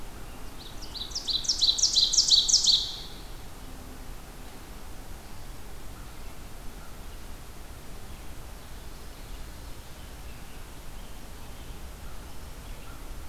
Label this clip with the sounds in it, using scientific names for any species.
Seiurus aurocapilla, Corvus brachyrhynchos, Geothlypis trichas, Turdus migratorius